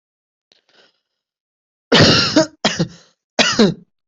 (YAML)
expert_labels:
- quality: ok
  cough_type: unknown
  dyspnea: false
  wheezing: false
  stridor: false
  choking: false
  congestion: false
  nothing: true
  diagnosis: healthy cough
  severity: pseudocough/healthy cough
gender: female
respiratory_condition: true
fever_muscle_pain: true
status: healthy